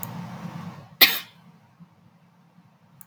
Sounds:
Sneeze